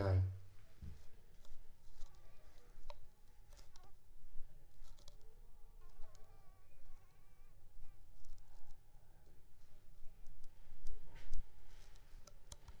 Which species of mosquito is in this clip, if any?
Anopheles squamosus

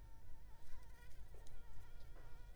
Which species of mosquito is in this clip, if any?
Anopheles arabiensis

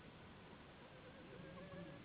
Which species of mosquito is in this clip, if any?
Anopheles gambiae s.s.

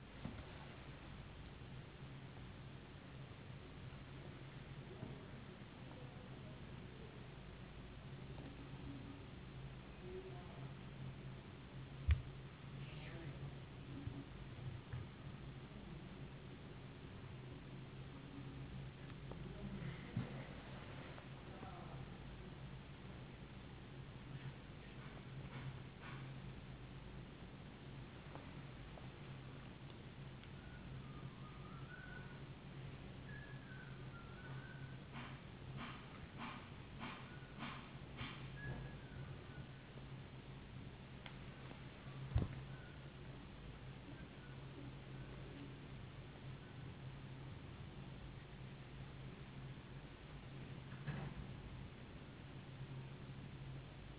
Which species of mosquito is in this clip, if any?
no mosquito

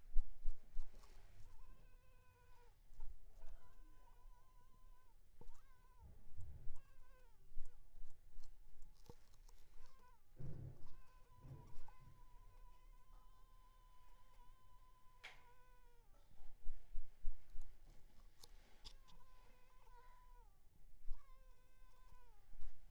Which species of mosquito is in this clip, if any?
Culex pipiens complex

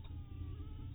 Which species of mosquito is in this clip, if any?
mosquito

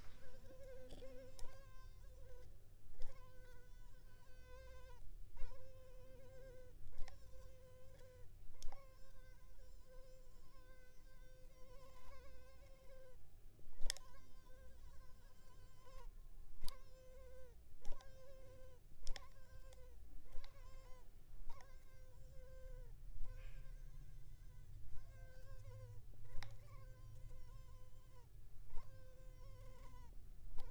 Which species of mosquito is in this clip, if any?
Culex pipiens complex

